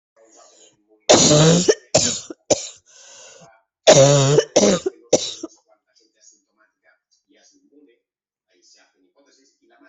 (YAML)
expert_labels:
- quality: ok
  cough_type: dry
  dyspnea: false
  wheezing: true
  stridor: false
  choking: false
  congestion: false
  nothing: false
  diagnosis: COVID-19
  severity: mild
age: 34
gender: female
respiratory_condition: true
fever_muscle_pain: false
status: symptomatic